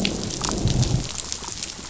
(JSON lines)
{"label": "biophony, growl", "recorder": "SoundTrap 500"}